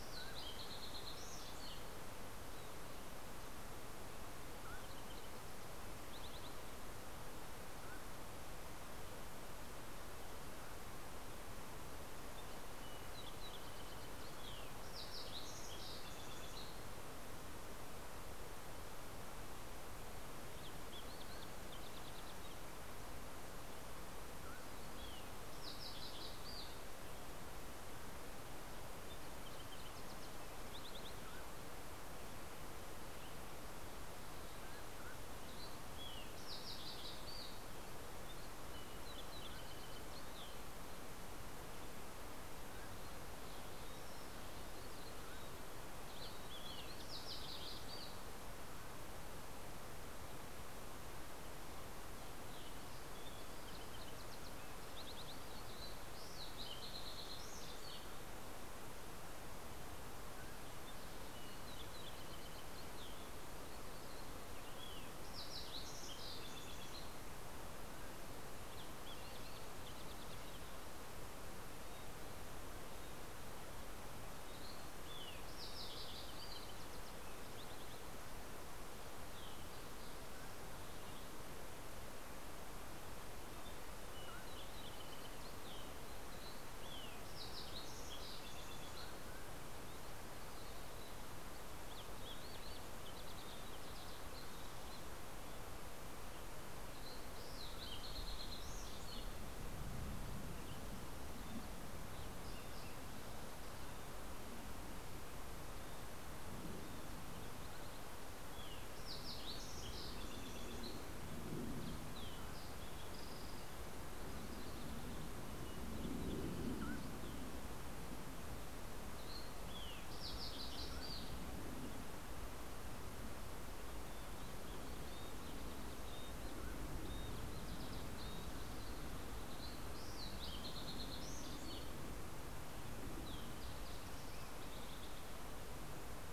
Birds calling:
Mountain Chickadee (Poecile gambeli), Dusky Flycatcher (Empidonax oberholseri), Mountain Quail (Oreortyx pictus), Fox Sparrow (Passerella iliaca)

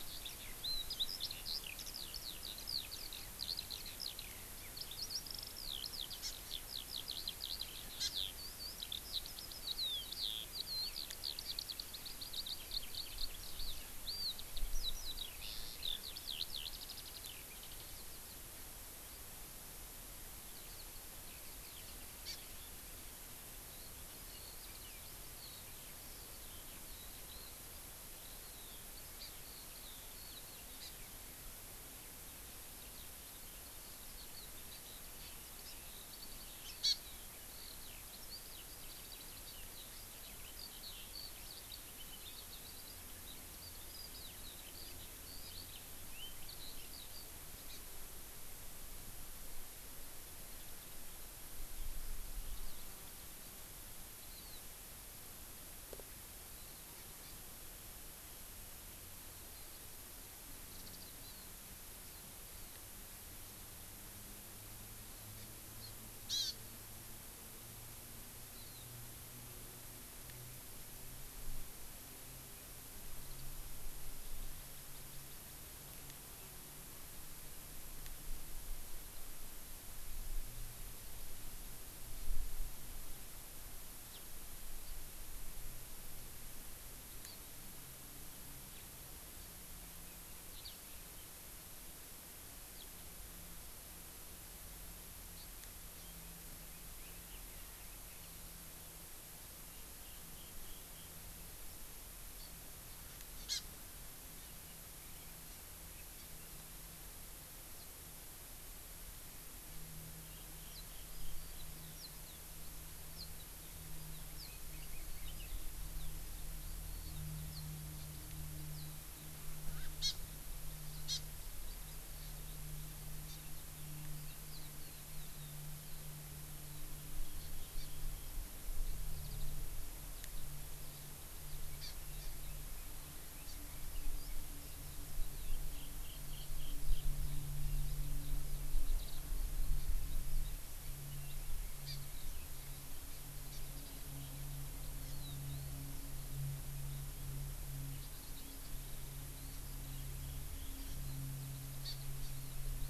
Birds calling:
Black Francolin (Francolinus francolinus), Hawaii Amakihi (Chlorodrepanis virens), Eurasian Skylark (Alauda arvensis)

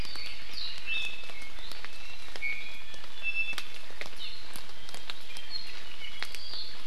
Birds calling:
Apapane (Himatione sanguinea), Hawaii Amakihi (Chlorodrepanis virens), Iiwi (Drepanis coccinea)

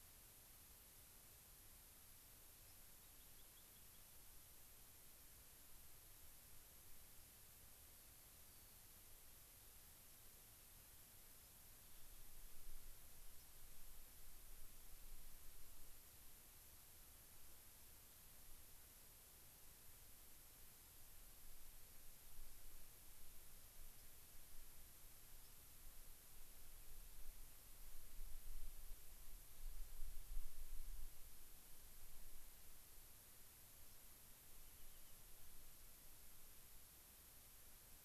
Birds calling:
White-crowned Sparrow (Zonotrichia leucophrys), Rock Wren (Salpinctes obsoletus)

